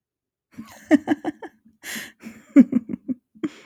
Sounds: Laughter